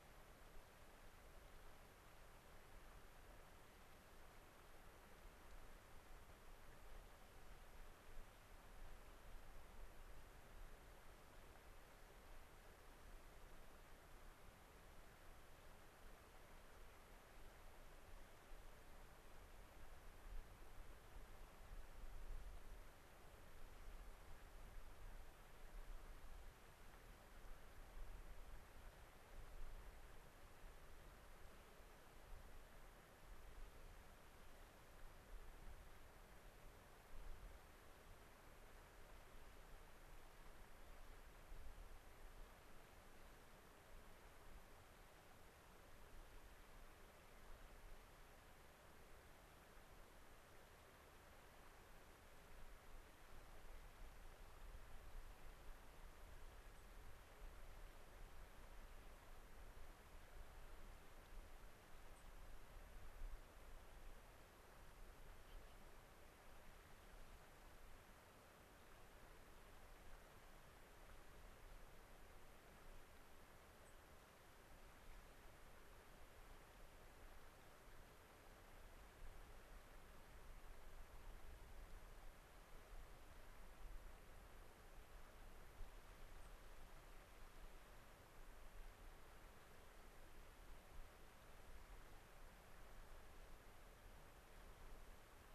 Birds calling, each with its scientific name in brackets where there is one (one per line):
White-crowned Sparrow (Zonotrichia leucophrys)